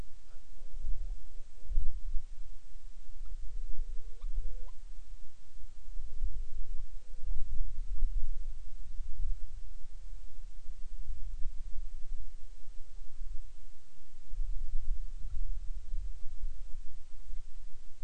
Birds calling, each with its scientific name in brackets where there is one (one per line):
Hawaiian Petrel (Pterodroma sandwichensis)